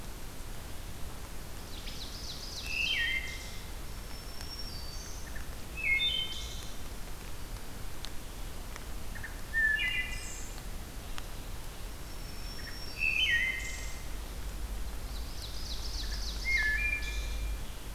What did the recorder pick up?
Ovenbird, Wood Thrush, Black-throated Green Warbler